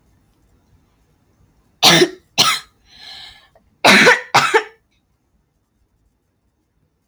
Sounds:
Cough